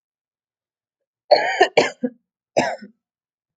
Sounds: Cough